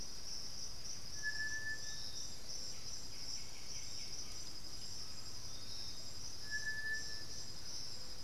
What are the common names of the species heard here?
Piratic Flycatcher, White-winged Becard, Undulated Tinamou, Thrush-like Wren